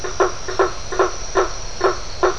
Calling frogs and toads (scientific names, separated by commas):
Boana faber